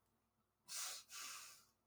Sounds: Sniff